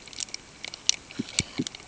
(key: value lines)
label: ambient
recorder: HydroMoth